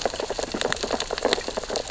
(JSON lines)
{"label": "biophony, sea urchins (Echinidae)", "recorder": "SoundTrap 600 or HydroMoth"}